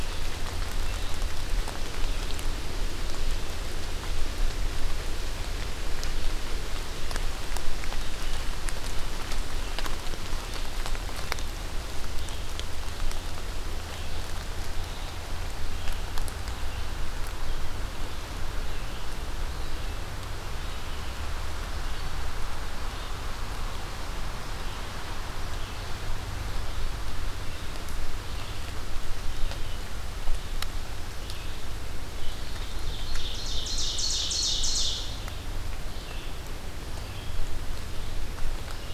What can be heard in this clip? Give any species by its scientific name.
Vireo olivaceus, Seiurus aurocapilla